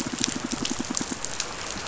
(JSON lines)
{"label": "biophony, pulse", "recorder": "SoundTrap 500"}